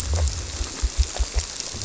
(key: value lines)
label: biophony
recorder: SoundTrap 300